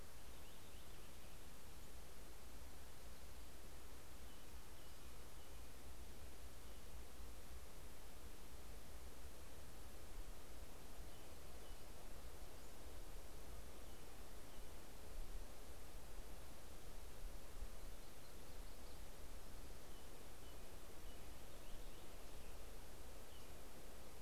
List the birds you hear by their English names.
Purple Finch, American Robin, Yellow-rumped Warbler